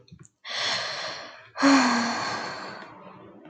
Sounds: Sigh